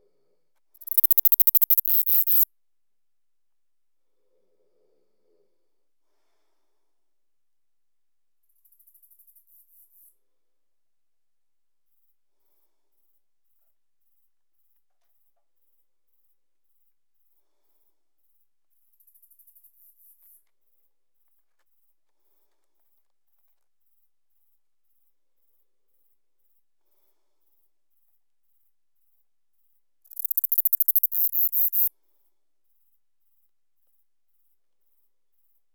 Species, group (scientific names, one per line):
Neocallicrania selligera
Orthoptera